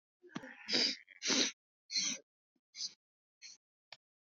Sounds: Sniff